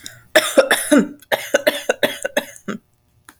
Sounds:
Cough